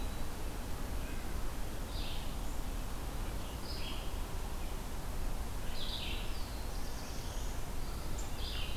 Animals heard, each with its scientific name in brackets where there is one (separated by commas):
Black-throated Blue Warbler (Setophaga caerulescens), Red-eyed Vireo (Vireo olivaceus)